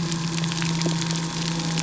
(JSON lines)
{"label": "anthrophony, boat engine", "recorder": "SoundTrap 300"}